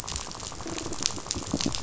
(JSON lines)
{"label": "biophony, rattle", "recorder": "SoundTrap 500"}